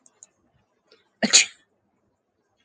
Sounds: Sneeze